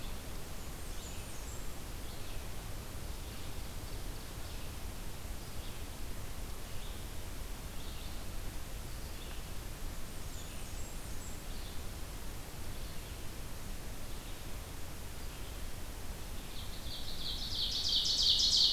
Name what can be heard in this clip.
Red-eyed Vireo, Blackburnian Warbler, Ovenbird